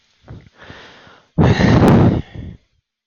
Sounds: Sigh